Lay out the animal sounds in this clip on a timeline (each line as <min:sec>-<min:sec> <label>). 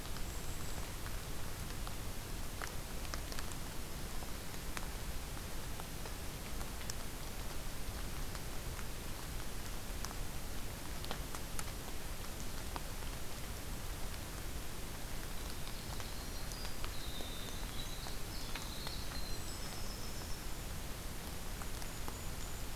0:00.2-0:00.8 Golden-crowned Kinglet (Regulus satrapa)
0:15.3-0:20.8 Winter Wren (Troglodytes hiemalis)
0:19.2-0:19.8 Golden-crowned Kinglet (Regulus satrapa)
0:21.5-0:22.8 Golden-crowned Kinglet (Regulus satrapa)